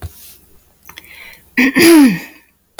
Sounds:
Throat clearing